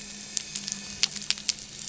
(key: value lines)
label: anthrophony, boat engine
recorder: SoundTrap 300